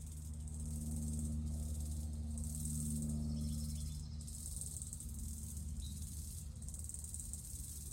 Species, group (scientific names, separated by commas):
Platypedia minor, Cicadidae